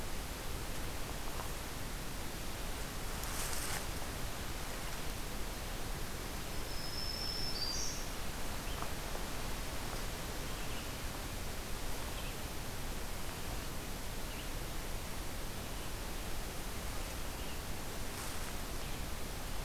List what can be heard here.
Black-throated Green Warbler, Red-eyed Vireo